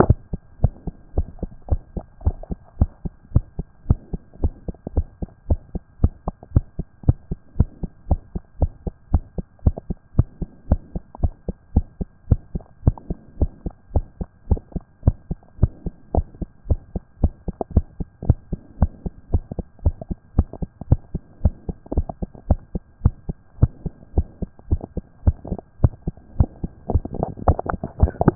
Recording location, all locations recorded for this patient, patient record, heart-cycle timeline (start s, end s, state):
mitral valve (MV)
aortic valve (AV)+pulmonary valve (PV)+pulmonary valve (PV)+tricuspid valve (TV)+tricuspid valve (TV)+mitral valve (MV)
#Age: Child
#Sex: Male
#Height: 130.0 cm
#Weight: 25.8 kg
#Pregnancy status: False
#Murmur: Present
#Murmur locations: aortic valve (AV)+pulmonary valve (PV)+tricuspid valve (TV)
#Most audible location: pulmonary valve (PV)
#Systolic murmur timing: Early-systolic
#Systolic murmur shape: Decrescendo
#Systolic murmur grading: I/VI
#Systolic murmur pitch: Low
#Systolic murmur quality: Blowing
#Diastolic murmur timing: nan
#Diastolic murmur shape: nan
#Diastolic murmur grading: nan
#Diastolic murmur pitch: nan
#Diastolic murmur quality: nan
#Outcome: Abnormal
#Campaign: 2014 screening campaign
0.00	0.18	S1
0.18	0.30	systole
0.30	0.40	S2
0.40	0.60	diastole
0.60	0.72	S1
0.72	0.86	systole
0.86	0.96	S2
0.96	1.16	diastole
1.16	1.28	S1
1.28	1.40	systole
1.40	1.50	S2
1.50	1.70	diastole
1.70	1.82	S1
1.82	1.94	systole
1.94	2.04	S2
2.04	2.24	diastole
2.24	2.38	S1
2.38	2.50	systole
2.50	2.58	S2
2.58	2.78	diastole
2.78	2.90	S1
2.90	3.02	systole
3.02	3.12	S2
3.12	3.32	diastole
3.32	3.44	S1
3.44	3.58	systole
3.58	3.68	S2
3.68	3.88	diastole
3.88	4.00	S1
4.00	4.12	systole
4.12	4.22	S2
4.22	4.42	diastole
4.42	4.54	S1
4.54	4.66	systole
4.66	4.76	S2
4.76	4.94	diastole
4.94	5.06	S1
5.06	5.18	systole
5.18	5.28	S2
5.28	5.48	diastole
5.48	5.60	S1
5.60	5.72	systole
5.72	5.82	S2
5.82	6.02	diastole
6.02	6.14	S1
6.14	6.26	systole
6.26	6.34	S2
6.34	6.54	diastole
6.54	6.66	S1
6.66	6.78	systole
6.78	6.86	S2
6.86	7.06	diastole
7.06	7.16	S1
7.16	7.28	systole
7.28	7.38	S2
7.38	7.58	diastole
7.58	7.68	S1
7.68	7.80	systole
7.80	7.90	S2
7.90	8.08	diastole
8.08	8.20	S1
8.20	8.32	systole
8.32	8.42	S2
8.42	8.60	diastole
8.60	8.72	S1
8.72	8.84	systole
8.84	8.94	S2
8.94	9.12	diastole
9.12	9.24	S1
9.24	9.36	systole
9.36	9.44	S2
9.44	9.64	diastole
9.64	9.76	S1
9.76	9.88	systole
9.88	9.98	S2
9.98	10.16	diastole
10.16	10.28	S1
10.28	10.40	systole
10.40	10.50	S2
10.50	10.70	diastole
10.70	10.82	S1
10.82	10.94	systole
10.94	11.02	S2
11.02	11.22	diastole
11.22	11.34	S1
11.34	11.46	systole
11.46	11.56	S2
11.56	11.74	diastole
11.74	11.86	S1
11.86	12.00	systole
12.00	12.10	S2
12.10	12.30	diastole
12.30	12.42	S1
12.42	12.54	systole
12.54	12.64	S2
12.64	12.84	diastole
12.84	12.96	S1
12.96	13.08	systole
13.08	13.18	S2
13.18	13.38	diastole
13.38	13.50	S1
13.50	13.64	systole
13.64	13.74	S2
13.74	13.94	diastole
13.94	14.06	S1
14.06	14.20	systole
14.20	14.30	S2
14.30	14.50	diastole
14.50	14.62	S1
14.62	14.74	systole
14.74	14.84	S2
14.84	15.04	diastole
15.04	15.16	S1
15.16	15.30	systole
15.30	15.40	S2
15.40	15.60	diastole
15.60	15.72	S1
15.72	15.84	systole
15.84	15.94	S2
15.94	16.14	diastole
16.14	16.26	S1
16.26	16.38	systole
16.38	16.48	S2
16.48	16.68	diastole
16.68	16.80	S1
16.80	16.92	systole
16.92	17.02	S2
17.02	17.22	diastole
17.22	17.32	S1
17.32	17.44	systole
17.44	17.54	S2
17.54	17.74	diastole
17.74	17.86	S1
17.86	17.98	systole
17.98	18.08	S2
18.08	18.26	diastole
18.26	18.38	S1
18.38	18.50	systole
18.50	18.60	S2
18.60	18.80	diastole
18.80	18.92	S1
18.92	19.04	systole
19.04	19.12	S2
19.12	19.32	diastole
19.32	19.44	S1
19.44	19.56	systole
19.56	19.66	S2
19.66	19.84	diastole
19.84	19.96	S1
19.96	20.08	systole
20.08	20.16	S2
20.16	20.36	diastole
20.36	20.48	S1
20.48	20.60	systole
20.60	20.70	S2
20.70	20.90	diastole
20.90	21.00	S1
21.00	21.12	systole
21.12	21.22	S2
21.22	21.42	diastole
21.42	21.54	S1
21.54	21.66	systole
21.66	21.76	S2
21.76	21.96	diastole
21.96	22.08	S1
22.08	22.20	systole
22.20	22.30	S2
22.30	22.48	diastole
22.48	22.60	S1
22.60	22.74	systole
22.74	22.84	S2
22.84	23.04	diastole
23.04	23.16	S1
23.16	23.28	systole
23.28	23.38	S2
23.38	23.60	diastole
23.60	23.72	S1
23.72	23.84	systole
23.84	23.94	S2
23.94	24.14	diastole
24.14	24.26	S1
24.26	24.40	systole
24.40	24.50	S2
24.50	24.70	diastole
24.70	24.82	S1
24.82	24.94	systole
24.94	25.04	S2
25.04	25.24	diastole
25.24	25.36	S1
25.36	25.48	systole
25.48	25.58	S2
25.58	25.80	diastole
25.80	25.92	S1
25.92	26.06	systole
26.06	26.16	S2
26.16	26.36	diastole
26.36	26.48	S1
26.48	26.60	systole
26.60	26.70	S2
26.70	26.87	diastole